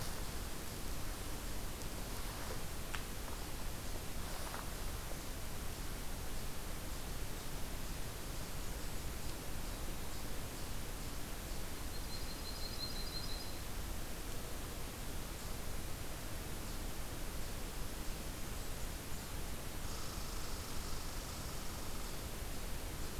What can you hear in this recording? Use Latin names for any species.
Setophaga coronata, Tamiasciurus hudsonicus